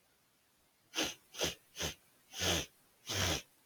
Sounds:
Sniff